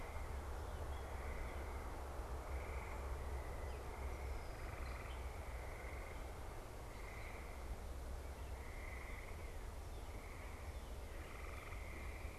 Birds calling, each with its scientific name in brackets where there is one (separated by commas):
Northern Cardinal (Cardinalis cardinalis)